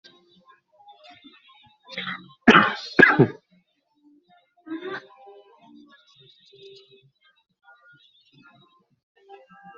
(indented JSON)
{
  "expert_labels": [
    {
      "quality": "good",
      "cough_type": "unknown",
      "dyspnea": false,
      "wheezing": false,
      "stridor": false,
      "choking": false,
      "congestion": false,
      "nothing": true,
      "diagnosis": "healthy cough",
      "severity": "pseudocough/healthy cough"
    }
  ],
  "age": 34,
  "gender": "male",
  "respiratory_condition": false,
  "fever_muscle_pain": true,
  "status": "symptomatic"
}